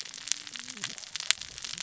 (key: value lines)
label: biophony, cascading saw
recorder: SoundTrap 600 or HydroMoth